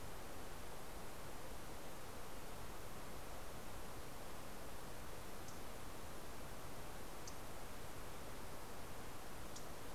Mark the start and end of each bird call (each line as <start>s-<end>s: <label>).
4.9s-9.9s: MacGillivray's Warbler (Geothlypis tolmiei)